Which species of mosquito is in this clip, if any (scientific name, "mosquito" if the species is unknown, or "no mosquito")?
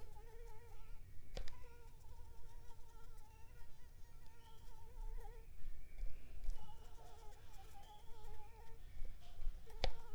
Anopheles gambiae s.l.